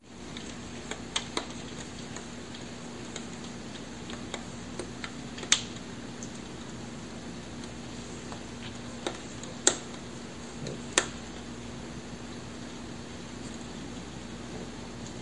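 0.0s Light rain is falling outdoors. 15.2s
0.9s Raindrops patter on metal. 1.4s
3.1s Raindrops patter on metal. 3.2s
4.0s Raindrops patter on metal. 5.9s
9.0s Raindrops patter on metal. 9.9s
10.6s Raindrops patter on metal. 11.3s

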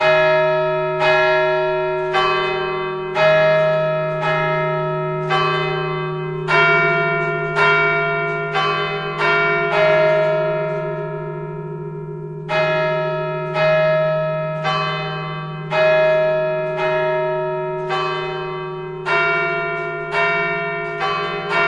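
0.0s A church bell rings with varying resonant and melodic notes. 21.7s

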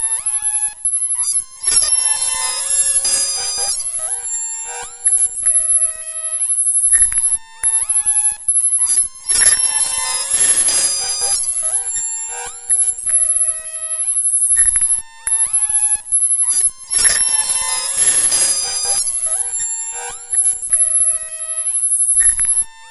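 0.0s Eerie high-pitched beeping sounds repeat randomly. 22.9s

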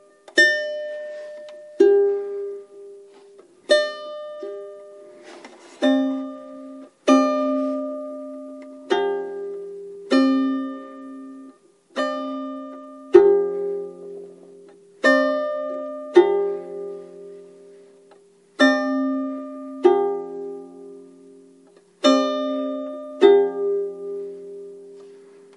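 0.3s Intermittent violin notes played at random intervals with a clear, resonant tone and varying intensity. 25.3s

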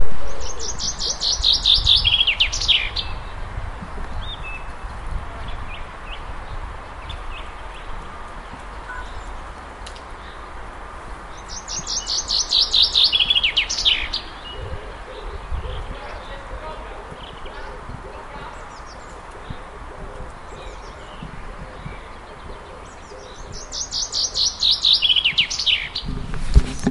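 0.2s Birds chirping. 3.2s
4.0s Various birds chirping. 8.1s
11.5s A bird chirps. 14.3s
16.0s Muffled talking. 18.7s
23.7s A bird chirps. 25.9s

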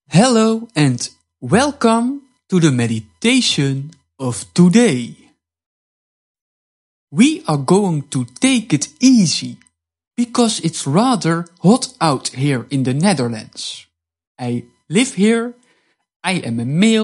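0.0s Men speaking loudly and clearly. 5.2s
7.1s Men speaking loudly and clearly. 15.5s
16.2s Men speaking loudly and clearly. 17.0s

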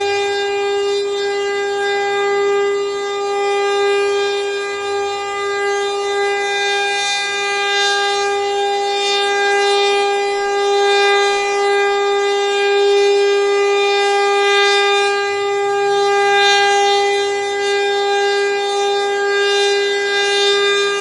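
0.1s An alarm sounds continuously. 21.0s

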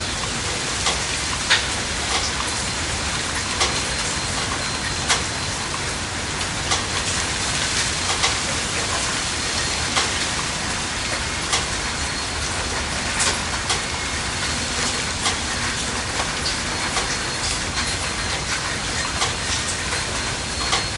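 0.0s A metallic squeaking in the background. 21.0s
0.0s Rain-like noise nearby. 21.0s
0.8s A single raindrop or hailstone falls on a roof. 2.5s
3.5s A single raindrop or hailstone falls on a roof. 3.8s
5.0s A single raindrop or hailstone falls on a roof. 5.3s
6.6s A single raindrop or hailstone falls on a roof. 6.8s
8.2s A single raindrop or hailstone falls on a roof. 8.4s
9.9s A single raindrop or hailstone falls on a roof. 10.1s
11.4s A single raindrop or hailstone falls on a roof. 11.7s
13.2s A single raindrop or hailstone falls on a roof. 13.9s
14.7s A single raindrop or hailstone falls on a roof. 15.4s
16.1s A single raindrop or hailstone falls on a roof. 17.1s
19.1s A single raindrop or hailstone falls on a roof. 20.8s

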